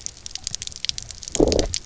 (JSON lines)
{"label": "biophony, low growl", "recorder": "SoundTrap 300"}